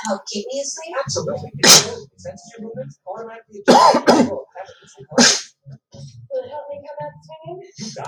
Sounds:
Sneeze